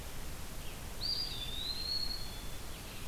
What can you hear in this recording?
Red-eyed Vireo, Eastern Wood-Pewee, Black-capped Chickadee